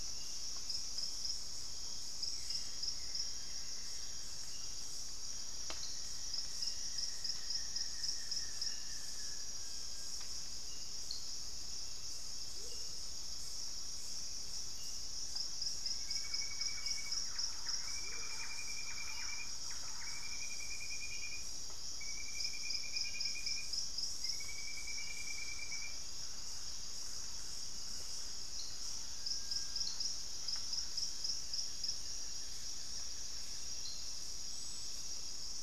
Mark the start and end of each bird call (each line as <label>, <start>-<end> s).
Buff-throated Woodcreeper (Xiphorhynchus guttatus), 0.0-10.4 s
Amazonian Motmot (Momotus momota), 12.5-13.0 s
Thrush-like Wren (Campylorhynchus turdinus), 15.6-20.5 s
Amazonian Motmot (Momotus momota), 17.9-18.4 s
Thrush-like Wren (Campylorhynchus turdinus), 24.1-30.9 s
Buff-throated Woodcreeper (Xiphorhynchus guttatus), 30.2-33.7 s